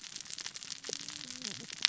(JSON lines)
{"label": "biophony, cascading saw", "recorder": "SoundTrap 600 or HydroMoth"}